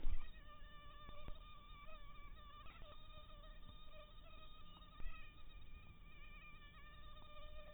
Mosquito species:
mosquito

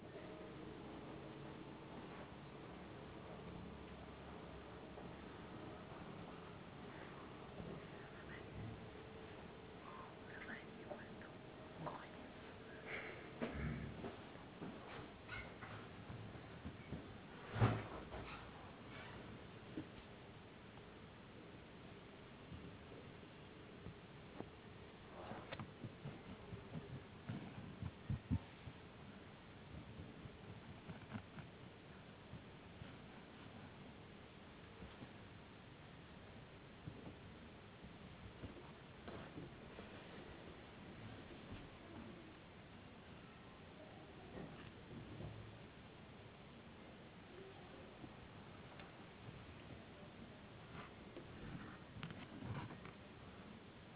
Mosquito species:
no mosquito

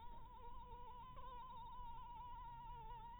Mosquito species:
Anopheles maculatus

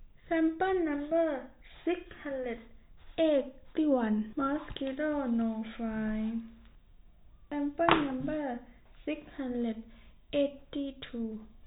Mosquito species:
no mosquito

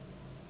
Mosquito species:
Anopheles gambiae s.s.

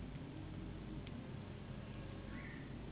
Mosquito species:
Anopheles gambiae s.s.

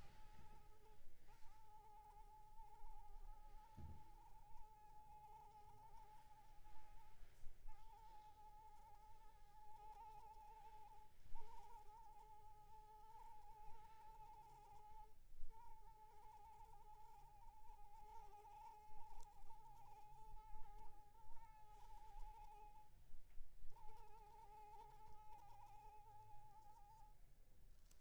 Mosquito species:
Anopheles arabiensis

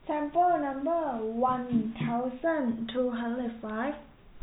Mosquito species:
no mosquito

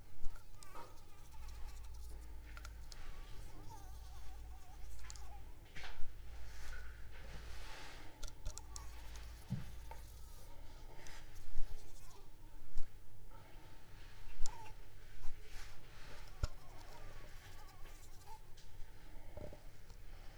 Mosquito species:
Anopheles arabiensis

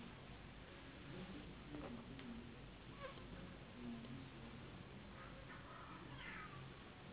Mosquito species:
Anopheles gambiae s.s.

